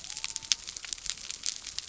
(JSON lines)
{"label": "biophony", "recorder": "SoundTrap 300"}